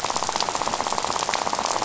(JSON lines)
{"label": "biophony, rattle", "recorder": "SoundTrap 500"}